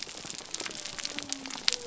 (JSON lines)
{"label": "biophony", "recorder": "SoundTrap 300"}